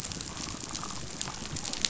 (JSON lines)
{"label": "biophony, chatter", "recorder": "SoundTrap 500"}